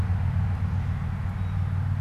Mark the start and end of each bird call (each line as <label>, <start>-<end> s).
Blue Jay (Cyanocitta cristata), 0.0-2.0 s